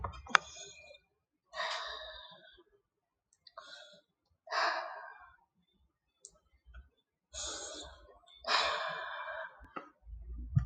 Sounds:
Sigh